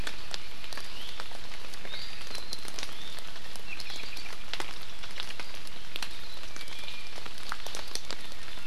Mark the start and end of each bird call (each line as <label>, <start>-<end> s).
Iiwi (Drepanis coccinea), 0.9-1.2 s
Iiwi (Drepanis coccinea), 1.9-2.3 s
Apapane (Himatione sanguinea), 3.7-4.3 s
Iiwi (Drepanis coccinea), 6.5-7.2 s